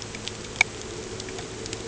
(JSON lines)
{"label": "anthrophony, boat engine", "recorder": "HydroMoth"}